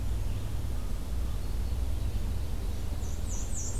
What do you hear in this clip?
Red-eyed Vireo, Ovenbird, Black-and-white Warbler